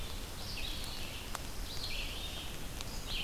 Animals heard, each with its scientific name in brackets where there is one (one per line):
Red-eyed Vireo (Vireo olivaceus)